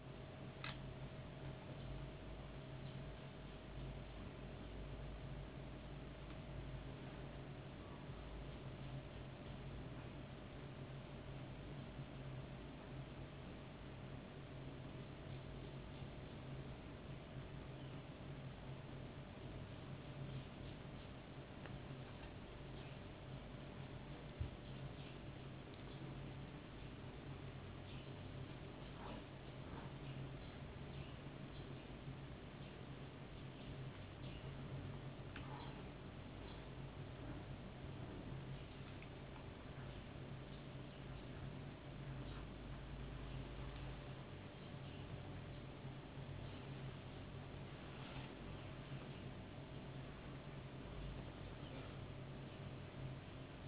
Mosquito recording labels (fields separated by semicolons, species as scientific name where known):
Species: no mosquito; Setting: insect culture